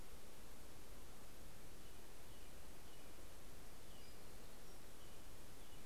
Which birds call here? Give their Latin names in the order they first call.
Turdus migratorius, Setophaga townsendi